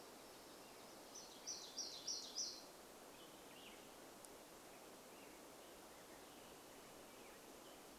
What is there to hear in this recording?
warbler song, unidentified sound, Black-headed Grosbeak song